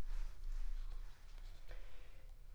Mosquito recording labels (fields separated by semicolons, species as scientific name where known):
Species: Aedes aegypti; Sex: female; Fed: unfed; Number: one; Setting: cup